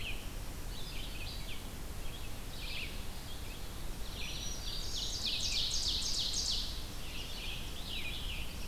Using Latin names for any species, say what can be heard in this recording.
Vireo olivaceus, Setophaga virens, Seiurus aurocapilla